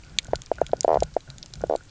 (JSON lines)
{"label": "biophony, knock croak", "recorder": "SoundTrap 300"}